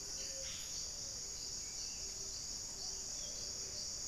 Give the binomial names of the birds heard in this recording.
Capito auratus, Leptotila rufaxilla, Patagioenas plumbea